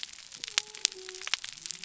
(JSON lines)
{"label": "biophony", "recorder": "SoundTrap 300"}